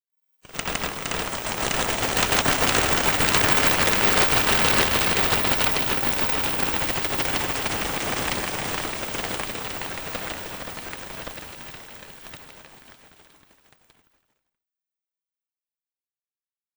How many objects are making noise?
one